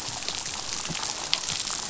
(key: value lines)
label: biophony, damselfish
recorder: SoundTrap 500